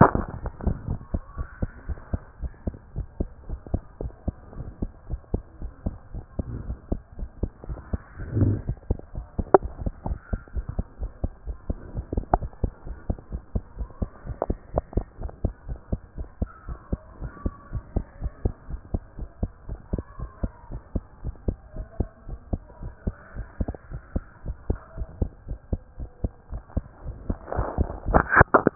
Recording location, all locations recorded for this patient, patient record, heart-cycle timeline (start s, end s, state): tricuspid valve (TV)
aortic valve (AV)+pulmonary valve (PV)+tricuspid valve (TV)+mitral valve (MV)
#Age: Child
#Sex: Female
#Height: 117.0 cm
#Weight: 19.2 kg
#Pregnancy status: False
#Murmur: Absent
#Murmur locations: nan
#Most audible location: nan
#Systolic murmur timing: nan
#Systolic murmur shape: nan
#Systolic murmur grading: nan
#Systolic murmur pitch: nan
#Systolic murmur quality: nan
#Diastolic murmur timing: nan
#Diastolic murmur shape: nan
#Diastolic murmur grading: nan
#Diastolic murmur pitch: nan
#Diastolic murmur quality: nan
#Outcome: Normal
#Campaign: 2014 screening campaign
0.00	12.86	unannotated
12.86	12.96	S1
12.96	13.08	systole
13.08	13.16	S2
13.16	13.32	diastole
13.32	13.42	S1
13.42	13.54	systole
13.54	13.62	S2
13.62	13.78	diastole
13.78	13.88	S1
13.88	14.00	systole
14.00	14.10	S2
14.10	14.26	diastole
14.26	14.36	S1
14.36	14.48	systole
14.48	14.58	S2
14.58	14.74	diastole
14.74	14.84	S1
14.84	14.96	systole
14.96	15.06	S2
15.06	15.22	diastole
15.22	15.32	S1
15.32	15.42	systole
15.42	15.52	S2
15.52	15.68	diastole
15.68	15.78	S1
15.78	15.90	systole
15.90	16.00	S2
16.00	16.18	diastole
16.18	16.28	S1
16.28	16.40	systole
16.40	16.50	S2
16.50	16.68	diastole
16.68	16.78	S1
16.78	16.90	systole
16.90	17.00	S2
17.00	17.20	diastole
17.20	17.32	S1
17.32	17.44	systole
17.44	17.54	S2
17.54	17.72	diastole
17.72	17.84	S1
17.84	17.94	systole
17.94	18.04	S2
18.04	18.22	diastole
18.22	18.32	S1
18.32	18.44	systole
18.44	18.54	S2
18.54	18.70	diastole
18.70	18.80	S1
18.80	18.92	systole
18.92	19.02	S2
19.02	19.18	diastole
19.18	19.28	S1
19.28	19.42	systole
19.42	19.50	S2
19.50	19.68	diastole
19.68	19.80	S1
19.80	19.92	systole
19.92	20.02	S2
20.02	20.20	diastole
20.20	20.30	S1
20.30	20.42	systole
20.42	20.52	S2
20.52	20.70	diastole
20.70	20.82	S1
20.82	20.94	systole
20.94	21.04	S2
21.04	21.24	diastole
21.24	21.34	S1
21.34	21.46	systole
21.46	21.56	S2
21.56	21.76	diastole
21.76	21.86	S1
21.86	21.98	systole
21.98	22.08	S2
22.08	22.28	diastole
22.28	22.38	S1
22.38	22.52	systole
22.52	22.62	S2
22.62	22.82	diastole
22.82	22.92	S1
22.92	23.06	systole
23.06	23.14	S2
23.14	23.36	diastole
23.36	23.46	S1
23.46	23.60	systole
23.60	23.72	S2
23.72	23.90	diastole
23.90	24.02	S1
24.02	24.14	systole
24.14	24.24	S2
24.24	24.46	diastole
24.46	24.56	S1
24.56	24.68	systole
24.68	24.78	S2
24.78	24.98	diastole
24.98	25.08	S1
25.08	25.20	systole
25.20	25.30	S2
25.30	25.48	diastole
25.48	25.58	S1
25.58	25.70	systole
25.70	25.80	S2
25.80	25.98	diastole
25.98	26.10	S1
26.10	26.22	systole
26.22	26.32	S2
26.32	26.52	diastole
26.52	26.62	S1
26.62	26.76	systole
26.76	26.84	S2
26.84	27.02	diastole
27.02	28.75	unannotated